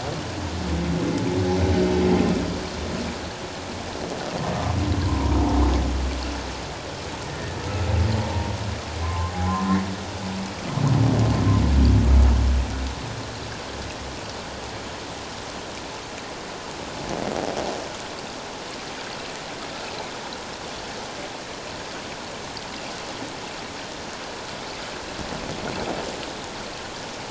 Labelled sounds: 5.1	5.3	humpback whale, 0.91 to 1.1 kHz
8.2	8.5	humpback whale, 0.88 to 1.0 kHz
9.0	9.3	humpback whale, 0.97 to 1.1 kHz

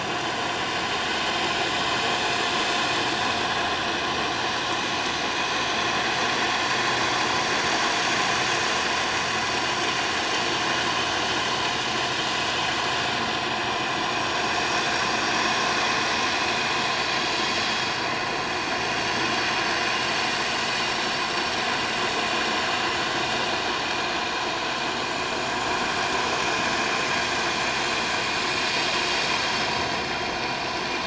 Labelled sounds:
27.1	27.4	vessel noise, 7.2 to 7.3 kHz

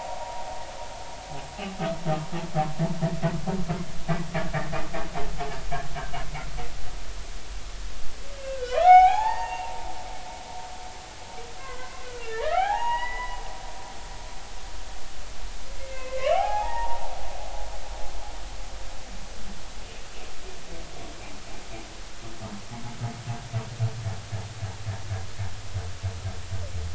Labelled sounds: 8.3	9.9	humpback whale, 0.80 to 6.8 kHz
11.6	13.4	humpback whale, 0.80 to 3.0 kHz
15.8	17.0	humpback whale, 0.80 to 3.1 kHz
17.4	17.7	humpback whale, 2.4 to 2.6 kHz

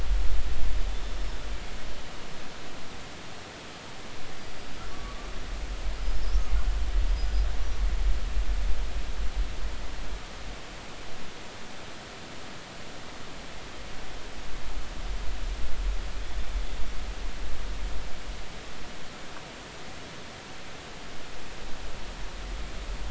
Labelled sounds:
0.9	1.1	killer whale, northern resident, G clan, 3.4 to 3.6 kHz
4.9	5.2	killer whale, northern resident, G clan, GI subclan, call N23i, 1.1 to 1.2 kHz
7.1	7.4	killer whale, northern resident, G clan, 4.8 to 5.0 kHz

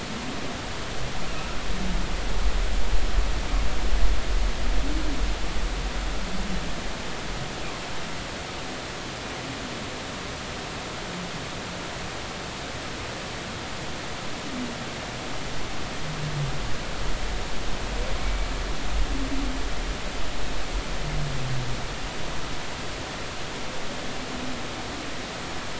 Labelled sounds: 18.2	18.5	humpback whale, 2.2 to 2.3 kHz

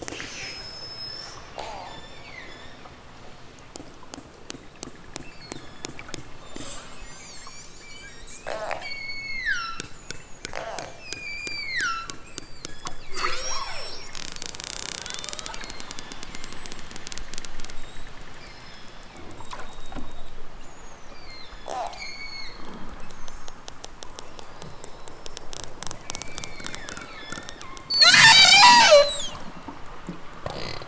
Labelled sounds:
1.8	2.8	killer whale, southern Alaska resident, 1.2 to 8.0 kHz
5.3	6.1	killer whale, southern Alaska resident, 1.5 to 8.0 kHz
8.9	9.9	killer whale, southern Alaska resident, 0.96 to 8.0 kHz
11.0	14.2	killer whale, southern Alaska resident, 0.18 to 8.0 kHz
15.1	16.7	killer whale, southern Alaska resident, 0.23 to 8.0 kHz
18.4	19.2	killer whale, southern Alaska resident, 1.4 to 5.9 kHz
21.0	21.7	killer whale, southern Alaska resident, 1.6 to 7.3 kHz
26.0	28.0	killer whale, southern Alaska resident, 0.73 to 6.2 kHz

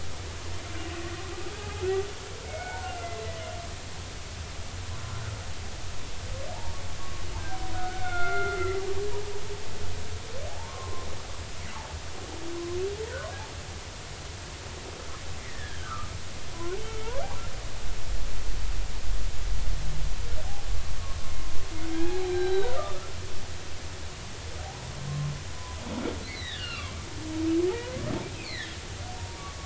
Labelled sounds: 1.6	1.8	humpback whale, 0.80 to 0.90 kHz
2.5	3.2	humpback whale, 1.3 to 2.3 kHz
7.0	8.8	humpback whale, 1.1 to 2.3 kHz
10.6	11.1	humpback whale, 0.99 to 1.2 kHz
15.4	16.1	humpback whale, 1.1 to 2.2 kHz
16.5	17.2	humpback whale, 0.96 to 2.3 kHz
21.9	23.0	humpback whale, 0.80 to 4.1 kHz
25.5	25.8	humpback whale, 0.96 to 1.1 kHz
26.3	27.0	humpback whale, 0.96 to 4.2 kHz
28.3	28.7	humpback whale, 1.7 to 4.6 kHz

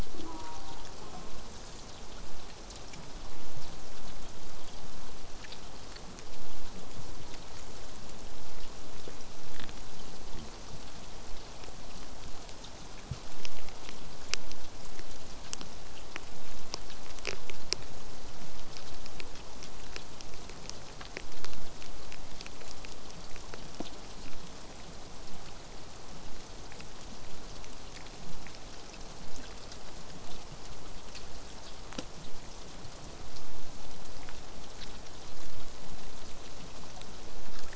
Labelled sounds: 0.1	1.5	killer whale, southern resident, J pod, call S04, 0.15 to 1.5 kHz
23.2	28.2	vessel noise, 0 to 8.0 kHz

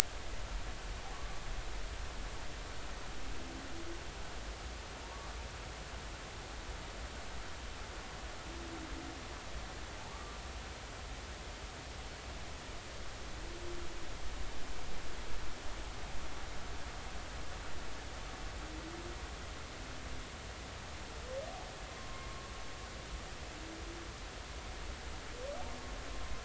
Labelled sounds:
1.1	1.4	humpback whale, 0.99 to 1.2 kHz
5.1	5.4	humpback whale, 1.1 to 1.2 kHz
10.1	10.4	humpback whale, 1.1 to 1.2 kHz
22.0	22.3	humpback whale, 1.0 to 1.1 kHz

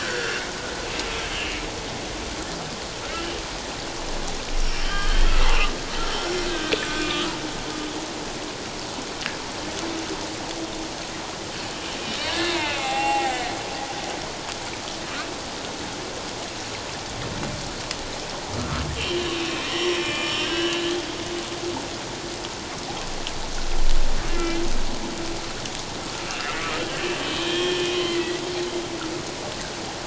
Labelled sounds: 3.0	3.3	humpback whale, 1.3 to 1.8 kHz
4.8	5.4	humpback whale, 1.1 to 3.3 kHz
6.2	7.3	humpback whale, 1.2 to 1.7 kHz
12.2	13.5	humpback whale, 0.78 to 3.8 kHz
18.5	20.8	humpback whale, 1.1 to 5.7 kHz
24.3	24.6	humpback whale, 2.0 to 2.8 kHz
26.3	26.6	humpback whale, 2.5 to 2.8 kHz
27.4	28.4	humpback whale, 1.7 to 5.8 kHz

